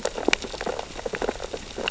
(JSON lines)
{"label": "biophony, sea urchins (Echinidae)", "recorder": "SoundTrap 600 or HydroMoth"}